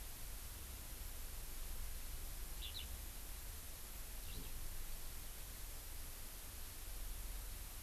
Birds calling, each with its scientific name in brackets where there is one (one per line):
Eurasian Skylark (Alauda arvensis)